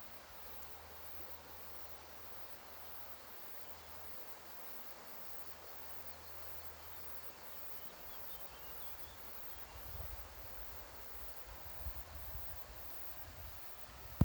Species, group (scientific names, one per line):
Tettigettula pygmea
Cicadidae